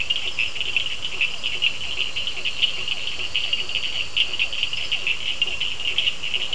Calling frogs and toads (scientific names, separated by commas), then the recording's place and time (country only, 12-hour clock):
Boana faber, Elachistocleis bicolor, Physalaemus cuvieri, Sphaenorhynchus surdus
Brazil, 7:30pm